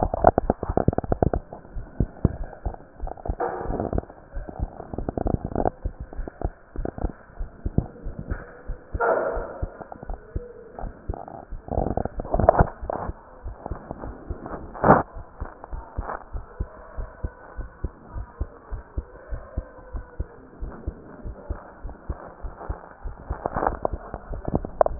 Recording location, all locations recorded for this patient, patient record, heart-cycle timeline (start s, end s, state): pulmonary valve (PV)
aortic valve (AV)+pulmonary valve (PV)+tricuspid valve (TV)+mitral valve (MV)
#Age: Adolescent
#Sex: Male
#Height: 145.0 cm
#Weight: 36.2 kg
#Pregnancy status: False
#Murmur: Absent
#Murmur locations: nan
#Most audible location: nan
#Systolic murmur timing: nan
#Systolic murmur shape: nan
#Systolic murmur grading: nan
#Systolic murmur pitch: nan
#Systolic murmur quality: nan
#Diastolic murmur timing: nan
#Diastolic murmur shape: nan
#Diastolic murmur grading: nan
#Diastolic murmur pitch: nan
#Diastolic murmur quality: nan
#Outcome: Normal
#Campaign: 2015 screening campaign
0.00	15.15	unannotated
15.15	15.23	S1
15.23	15.37	systole
15.37	15.50	S2
15.50	15.70	diastole
15.70	15.82	S1
15.82	15.94	systole
15.94	16.06	S2
16.06	16.32	diastole
16.32	16.44	S1
16.44	16.56	systole
16.56	16.68	S2
16.68	16.96	diastole
16.96	17.10	S1
17.10	17.20	systole
17.20	17.32	S2
17.32	17.57	diastole
17.57	17.70	S1
17.70	17.80	systole
17.80	17.92	S2
17.92	18.13	diastole
18.13	18.27	S1
18.27	18.38	systole
18.38	18.48	S2
18.48	18.71	diastole
18.71	18.84	S1
18.84	18.95	systole
18.95	19.05	S2
19.05	19.29	diastole
19.29	19.41	S1
19.41	19.54	systole
19.54	19.67	S2
19.67	19.90	diastole
19.90	20.05	S1
20.05	20.17	systole
20.17	20.28	S2
20.28	20.59	diastole
20.59	20.73	S1
20.73	20.85	systole
20.85	20.95	S2
20.95	21.23	diastole
21.23	21.36	S1
21.36	21.46	systole
21.46	21.58	S2
21.58	21.82	diastole
21.82	21.94	S1
21.94	22.06	systole
22.06	22.18	S2
22.18	22.42	diastole
22.42	22.54	S1
22.54	22.67	systole
22.67	22.78	S2
22.78	23.01	diastole
23.01	24.99	unannotated